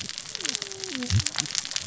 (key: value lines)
label: biophony, cascading saw
recorder: SoundTrap 600 or HydroMoth